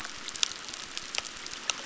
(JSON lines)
{"label": "biophony, crackle", "recorder": "SoundTrap 600"}